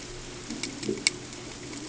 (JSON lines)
{"label": "ambient", "recorder": "HydroMoth"}